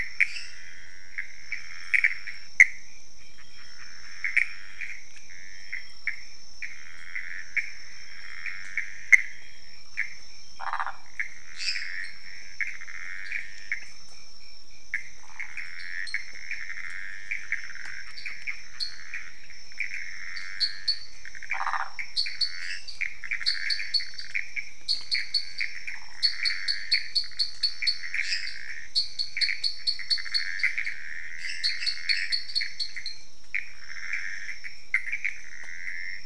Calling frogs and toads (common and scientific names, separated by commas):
Pithecopus azureus, lesser tree frog (Dendropsophus minutus), waxy monkey tree frog (Phyllomedusa sauvagii), dwarf tree frog (Dendropsophus nanus)